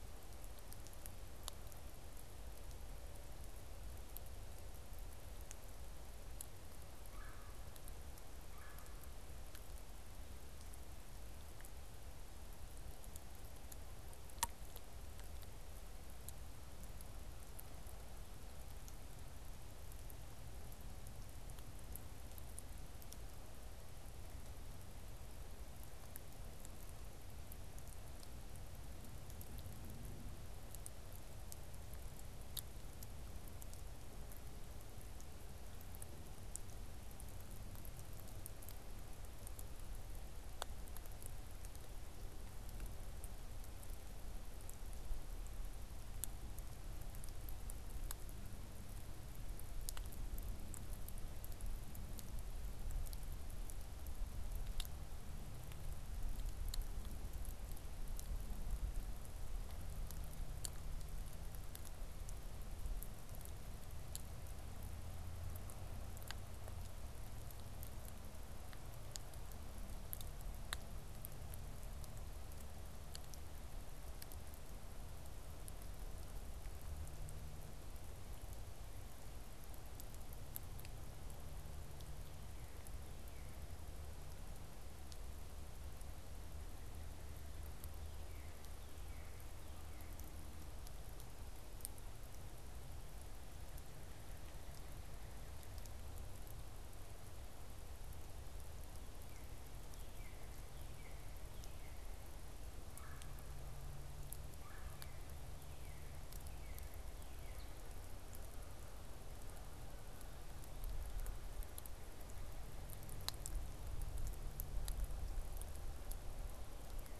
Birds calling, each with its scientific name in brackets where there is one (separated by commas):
Red-bellied Woodpecker (Melanerpes carolinus), Northern Cardinal (Cardinalis cardinalis)